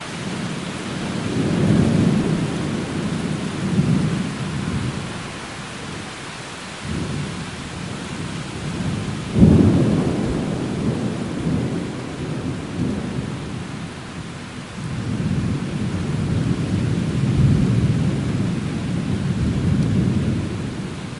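The wind is howling as heavy rain pours and thunder rumbles. 0:00.1 - 0:21.1

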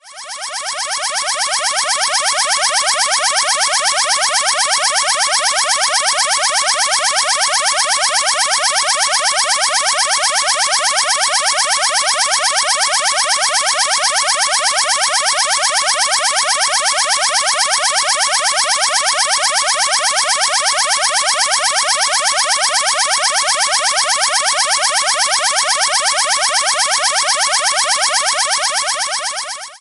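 An alarm sounds loudly. 0:00.0 - 0:29.8

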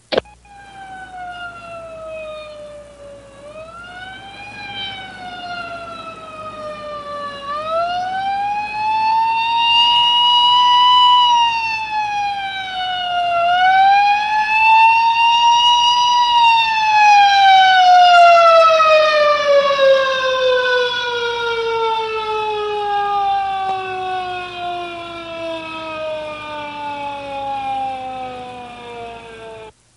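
A car siren increases in loudness before fading away. 0:00.0 - 0:30.0

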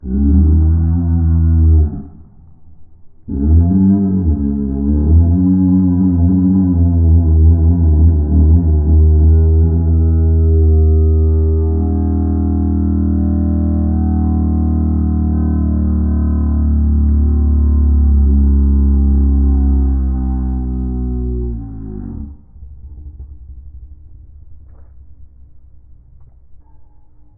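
Low, indistinct ambient hum transmitted through walls. 0:00.1 - 0:11.5
Sharp, loud, vibrating drilling sound that abruptly cuts off. 0:11.5 - 0:27.4

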